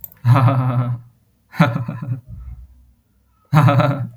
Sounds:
Laughter